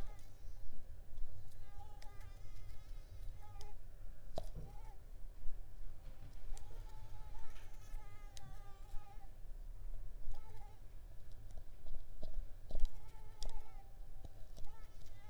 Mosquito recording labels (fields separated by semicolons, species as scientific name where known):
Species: Mansonia uniformis; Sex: female; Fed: unfed; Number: one; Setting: cup